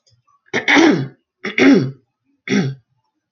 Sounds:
Throat clearing